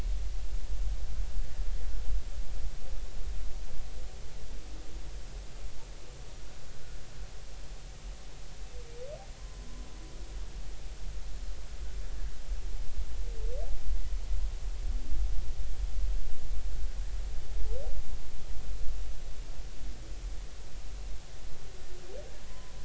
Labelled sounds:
9.4	9.7	humpback whale, 0.99 to 1.1 kHz
22.5	22.7	humpback whale, 0.96 to 1.1 kHz

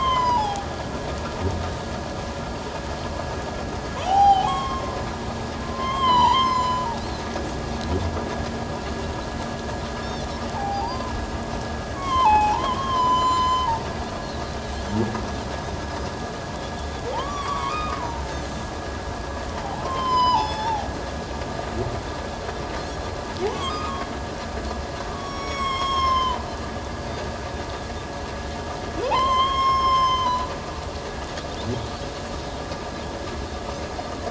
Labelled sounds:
1.1	1.4	humpback whale, 1.2 to 1.4 kHz
1.6	1.9	humpback whale, 3.8 to 3.9 kHz
4.0	5.0	humpback whale, 0.78 to 3.4 kHz
5.6	6.8	humpback whale, 0.84 to 5.3 kHz
6.9	7.2	Pacific white-sided dolphin, 3.8 to 4.4 kHz
10.5	11.2	Pacific white-sided dolphin, 0.78 to 1.1 kHz
10.8	11.1	humpback whale, 4.5 to 4.9 kHz
11.9	13.7	humpback whale, 0.78 to 7.2 kHz
17.1	18.4	humpback whale, 0.78 to 1.4 kHz
19.6	20.9	humpback whale, 0.78 to 7.2 kHz
23.4	23.9	humpback whale, 0.78 to 1.3 kHz
25.1	26.4	humpback whale, 0.88 to 7.8 kHz
26.9	27.2	Pacific white-sided dolphin, 4.5 to 4.9 kHz
29.1	30.5	humpback whale, 0.78 to 7.4 kHz

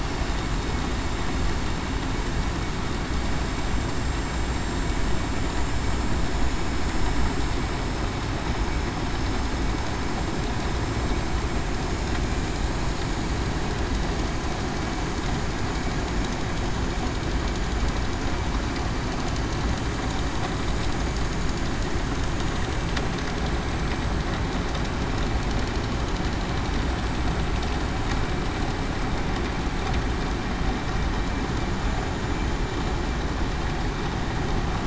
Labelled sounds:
0.0	0.4	vessel noise, 7.3 to 7.4 kHz
4.6	7.3	vessel noise, 6.8 to 7.3 kHz
12.8	13.4	vessel noise, 6.8 to 6.9 kHz

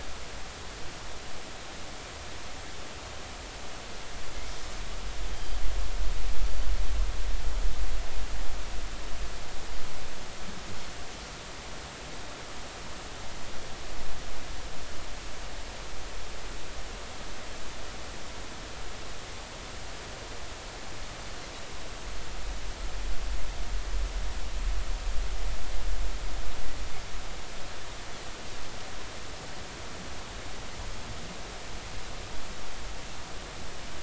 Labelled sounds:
5.3	5.6	Pacific white-sided dolphin, 3.1 to 3.3 kHz

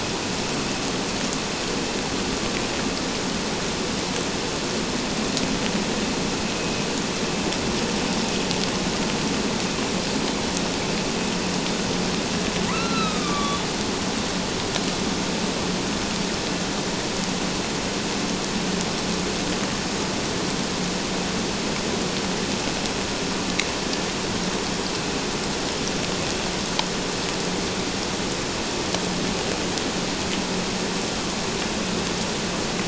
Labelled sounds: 12.7	13.7	killer whale, northern resident, A clan, AA subclan, call N04, 1.1 to 4.2 kHz

